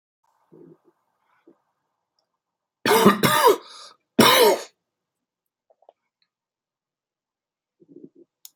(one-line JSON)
{"expert_labels": [{"quality": "good", "cough_type": "dry", "dyspnea": false, "wheezing": false, "stridor": false, "choking": false, "congestion": false, "nothing": true, "diagnosis": "upper respiratory tract infection", "severity": "mild"}], "age": 36, "gender": "male", "respiratory_condition": false, "fever_muscle_pain": false, "status": "symptomatic"}